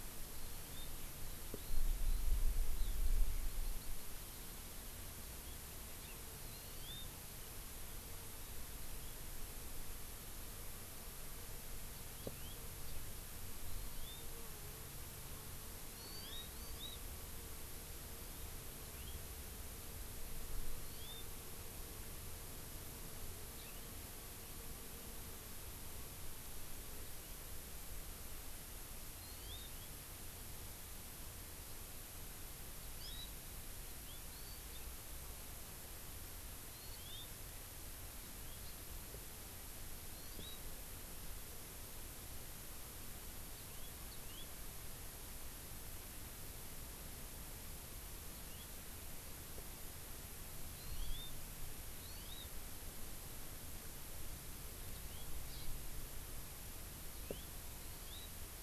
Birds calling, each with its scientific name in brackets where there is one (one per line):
Eurasian Skylark (Alauda arvensis)
Hawaii Amakihi (Chlorodrepanis virens)